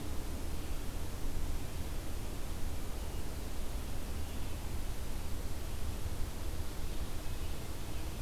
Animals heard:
forest ambience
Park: Marsh-Billings-Rockefeller National Historical Park